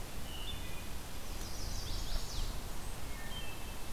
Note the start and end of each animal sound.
0.0s-1.1s: Wood Thrush (Hylocichla mustelina)
1.1s-2.7s: Chestnut-sided Warbler (Setophaga pensylvanica)
1.3s-2.3s: Eastern Wood-Pewee (Contopus virens)
1.6s-3.3s: Blackburnian Warbler (Setophaga fusca)
2.9s-3.8s: Wood Thrush (Hylocichla mustelina)

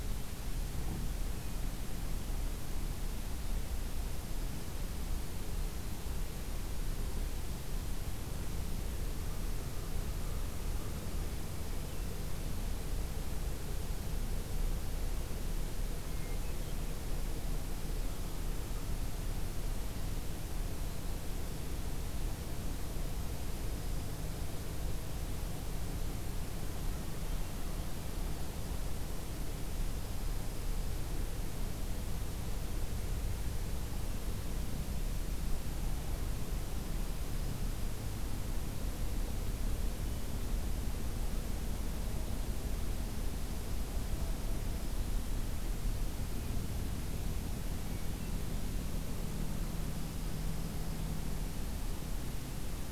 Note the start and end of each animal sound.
9.5s-11.1s: American Crow (Corvus brachyrhynchos)
16.0s-16.9s: Hermit Thrush (Catharus guttatus)
23.1s-24.6s: Dark-eyed Junco (Junco hyemalis)
29.7s-31.0s: Dark-eyed Junco (Junco hyemalis)
46.2s-46.9s: Hermit Thrush (Catharus guttatus)
47.8s-48.5s: Hermit Thrush (Catharus guttatus)

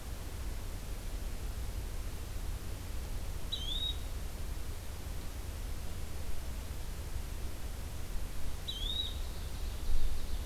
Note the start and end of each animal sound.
3.4s-4.1s: Yellow-bellied Flycatcher (Empidonax flaviventris)
8.6s-9.2s: Yellow-bellied Flycatcher (Empidonax flaviventris)
9.2s-10.5s: Ovenbird (Seiurus aurocapilla)

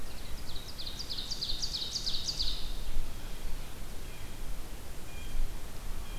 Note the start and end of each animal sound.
0.0s-2.8s: Ovenbird (Seiurus aurocapilla)
3.0s-6.2s: Blue Jay (Cyanocitta cristata)

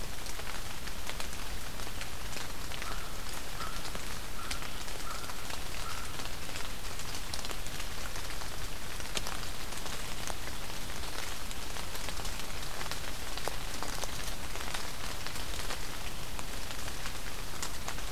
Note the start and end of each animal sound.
2.7s-6.8s: American Crow (Corvus brachyrhynchos)

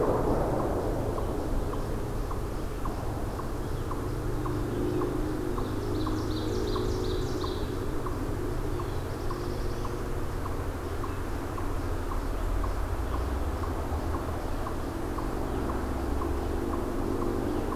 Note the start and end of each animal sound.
2.2s-17.8s: Eastern Chipmunk (Tamias striatus)
5.3s-7.8s: Ovenbird (Seiurus aurocapilla)
8.7s-10.0s: Black-throated Blue Warbler (Setophaga caerulescens)

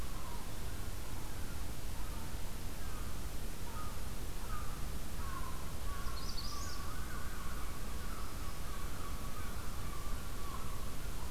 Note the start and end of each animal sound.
0.0s-11.3s: American Herring Gull (Larus smithsonianus)
6.0s-7.0s: Magnolia Warbler (Setophaga magnolia)
7.9s-9.0s: Black-throated Green Warbler (Setophaga virens)

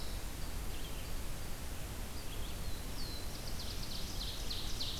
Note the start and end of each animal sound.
0.0s-5.0s: Red-eyed Vireo (Vireo olivaceus)
2.3s-4.1s: Black-throated Blue Warbler (Setophaga caerulescens)
3.5s-5.0s: Ovenbird (Seiurus aurocapilla)

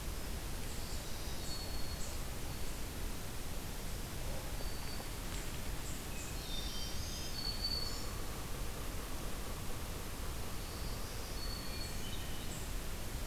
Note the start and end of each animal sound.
0.5s-2.6s: Black-throated Green Warbler (Setophaga virens)
4.3s-5.3s: Black-throated Green Warbler (Setophaga virens)
6.1s-8.5s: Black-throated Green Warbler (Setophaga virens)
6.3s-7.5s: Hermit Thrush (Catharus guttatus)
7.6s-11.9s: Yellow-bellied Sapsucker (Sphyrapicus varius)
10.3s-12.6s: Black-throated Green Warbler (Setophaga virens)
11.4s-12.7s: Hermit Thrush (Catharus guttatus)

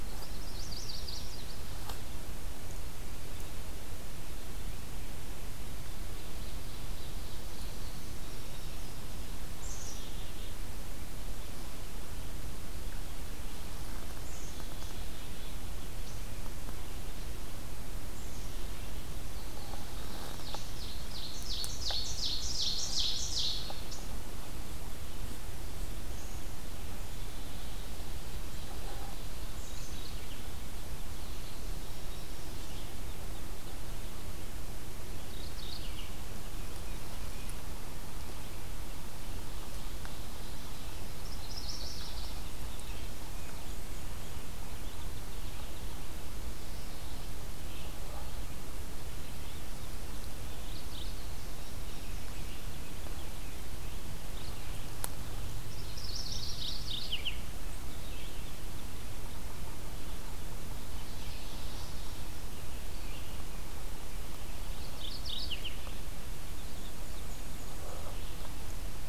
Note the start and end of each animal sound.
0.0s-1.6s: Chestnut-sided Warbler (Setophaga pensylvanica)
6.0s-7.8s: Ovenbird (Seiurus aurocapilla)
7.2s-9.5s: Indigo Bunting (Passerina cyanea)
9.4s-10.6s: Black-capped Chickadee (Poecile atricapillus)
14.2s-15.7s: Black-capped Chickadee (Poecile atricapillus)
18.1s-19.1s: Black-capped Chickadee (Poecile atricapillus)
18.8s-20.6s: Indigo Bunting (Passerina cyanea)
20.3s-23.9s: Ovenbird (Seiurus aurocapilla)
27.0s-28.1s: Black-capped Chickadee (Poecile atricapillus)
28.0s-29.8s: Ovenbird (Seiurus aurocapilla)
29.5s-30.5s: Mourning Warbler (Geothlypis philadelphia)
29.6s-30.5s: Black-capped Chickadee (Poecile atricapillus)
31.7s-32.9s: Chestnut-sided Warbler (Setophaga pensylvanica)
35.0s-36.2s: Mourning Warbler (Geothlypis philadelphia)
39.1s-41.1s: Ovenbird (Seiurus aurocapilla)
41.1s-42.6s: Chestnut-sided Warbler (Setophaga pensylvanica)
43.1s-44.6s: Black-and-white Warbler (Mniotilta varia)
50.4s-51.6s: Mourning Warbler (Geothlypis philadelphia)
53.8s-55.0s: Mourning Warbler (Geothlypis philadelphia)
55.8s-57.5s: Mourning Warbler (Geothlypis philadelphia)
64.7s-66.0s: Mourning Warbler (Geothlypis philadelphia)
66.4s-68.1s: Black-and-white Warbler (Mniotilta varia)

